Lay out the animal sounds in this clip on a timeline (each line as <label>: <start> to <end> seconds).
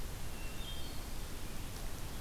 Hermit Thrush (Catharus guttatus): 0.0 to 1.3 seconds